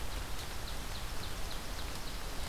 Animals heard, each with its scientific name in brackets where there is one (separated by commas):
Ovenbird (Seiurus aurocapilla)